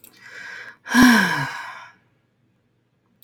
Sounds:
Sigh